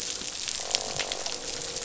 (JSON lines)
{"label": "biophony, croak", "recorder": "SoundTrap 500"}